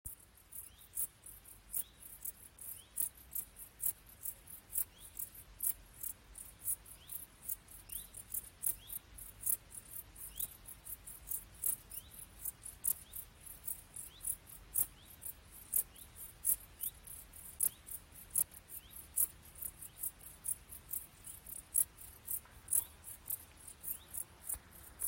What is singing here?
Pholidoptera griseoaptera, an orthopteran